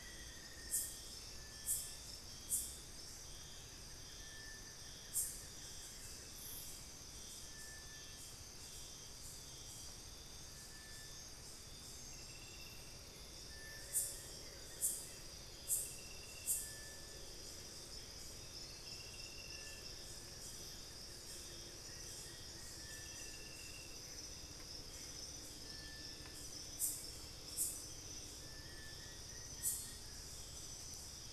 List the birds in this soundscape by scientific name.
Formicarius analis, Crypturellus soui, Xiphorhynchus guttatus, Thamnophilus schistaceus, Cercomacra cinerascens